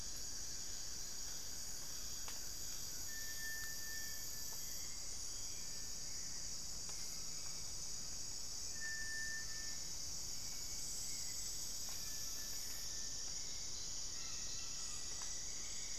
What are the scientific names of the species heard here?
Xiphorhynchus guttatus, Crypturellus cinereus, Turdus hauxwelli